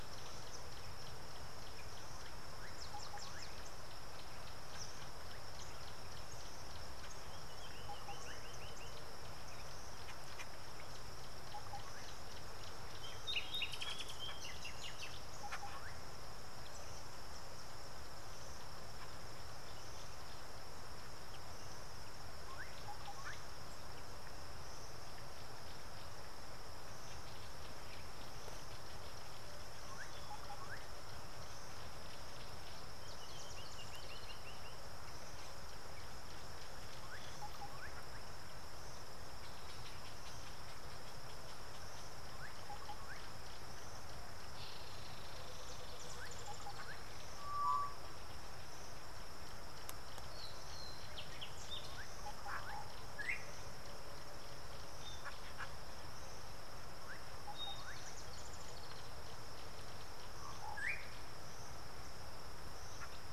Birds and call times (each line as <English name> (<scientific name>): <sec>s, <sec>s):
Brown-crowned Tchagra (Tchagra australis): 45.3s
Tropical Boubou (Laniarius major): 47.7s
Slate-colored Boubou (Laniarius funebris): 53.3s, 60.8s